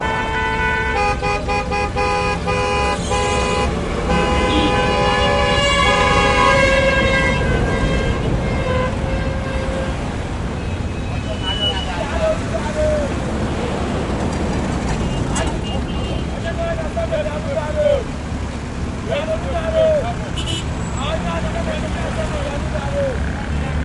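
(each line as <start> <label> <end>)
0.0 Car horns honk loudly and intermittently in heavy traffic, creating a sharp, chaotic sound amid the constant hum of engines and passing vehicles. 23.8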